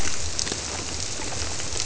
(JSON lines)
{"label": "biophony", "recorder": "SoundTrap 300"}